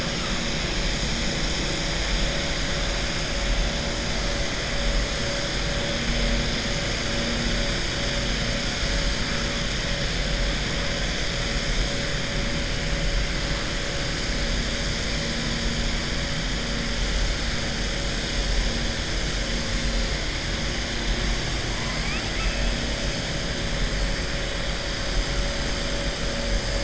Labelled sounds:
21.7	22.7	killer whale, southern resident, 0.81 to 3.3 kHz

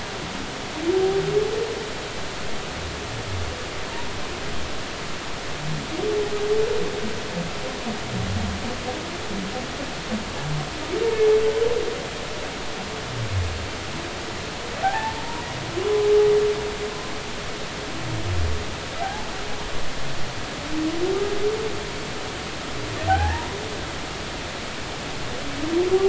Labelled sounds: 14.8	15.2	humpback whale, 0.80 to 1.9 kHz
19.0	19.3	humpback whale, 0.80 to 0.93 kHz
23.1	23.6	humpback whale, 0.80 to 1.9 kHz

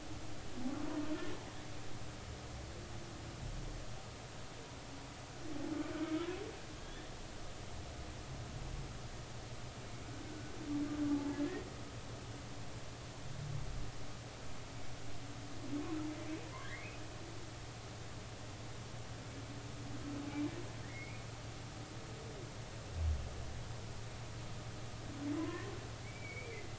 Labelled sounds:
5.9	6.2	humpback whale, 1.4 to 1.6 kHz
6.8	7.1	humpback whale, 1.6 to 3.6 kHz
10.2	10.6	humpback whale, 1.4 to 1.6 kHz
11.1	11.4	humpback whale, 0.83 to 0.96 kHz
16.6	17.0	humpback whale, 1.5 to 2.7 kHz
20.8	21.3	humpback whale, 1.6 to 2.5 kHz
25.3	26.7	humpback whale, 0.96 to 2.4 kHz

